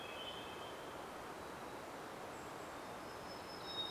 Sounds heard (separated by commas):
Hermit Warbler song, Hermit Thrush song, Golden-crowned Kinglet call